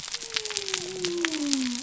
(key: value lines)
label: biophony
recorder: SoundTrap 300